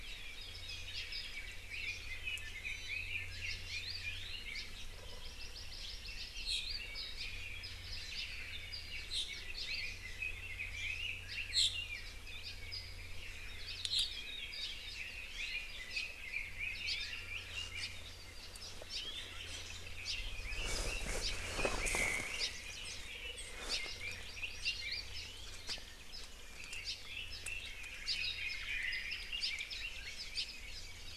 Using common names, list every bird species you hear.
Red-billed Leiothrix, Iiwi, Hawaii Akepa, Hawaii Amakihi, Apapane, Hawaii Creeper, Omao